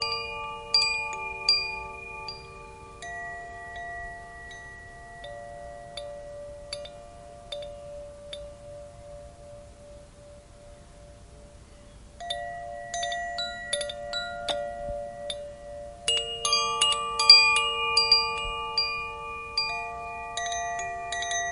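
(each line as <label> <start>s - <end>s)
Wind chimes ring soothingly with fluctuating tempo and pitch. 0.0s - 21.5s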